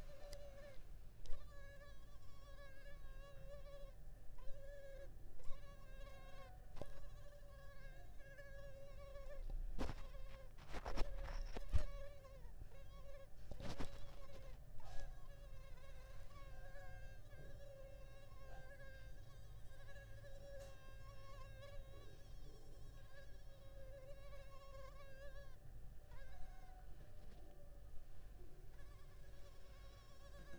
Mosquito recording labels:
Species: Culex pipiens complex; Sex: female; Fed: unfed; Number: one; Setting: cup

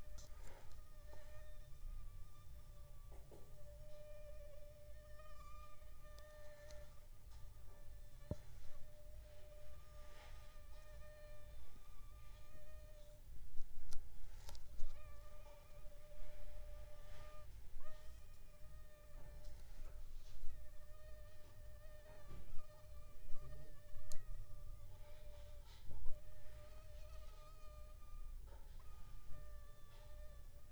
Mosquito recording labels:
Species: Anopheles funestus s.s.; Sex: female; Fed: unfed; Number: one; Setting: cup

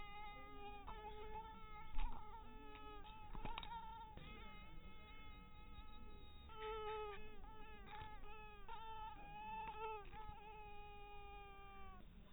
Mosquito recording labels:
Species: mosquito; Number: one; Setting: cup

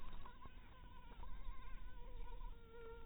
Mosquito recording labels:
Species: mosquito; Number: one; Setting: cup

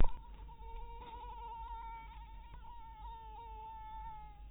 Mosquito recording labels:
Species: mosquito; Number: one; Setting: cup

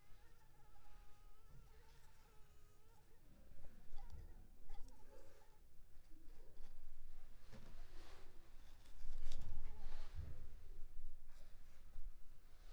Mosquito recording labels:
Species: Anopheles arabiensis; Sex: female; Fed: unfed; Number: one; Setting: cup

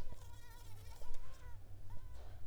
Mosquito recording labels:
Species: Mansonia africanus; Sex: female; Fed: unfed; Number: one; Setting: cup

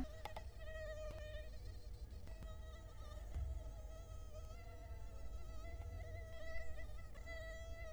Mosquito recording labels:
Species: Culex quinquefasciatus; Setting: cup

